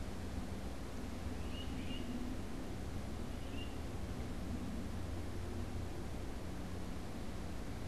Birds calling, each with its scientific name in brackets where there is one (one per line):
Great Crested Flycatcher (Myiarchus crinitus)